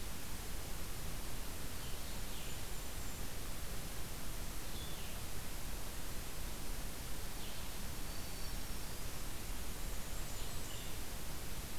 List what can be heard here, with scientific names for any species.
Vireo solitarius, Regulus satrapa, Setophaga virens, Setophaga fusca